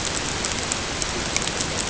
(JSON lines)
{"label": "ambient", "recorder": "HydroMoth"}